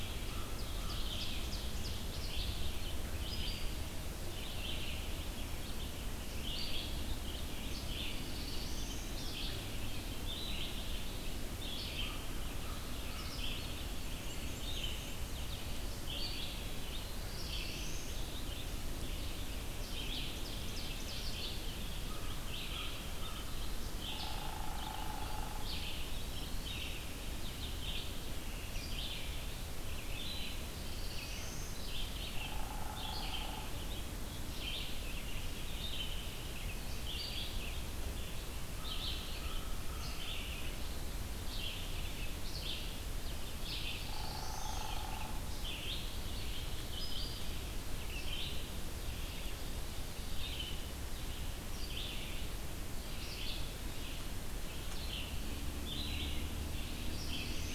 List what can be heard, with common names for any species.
American Crow, Red-eyed Vireo, Ovenbird, Black-throated Blue Warbler, Black-and-white Warbler, Hairy Woodpecker, Eastern Wood-Pewee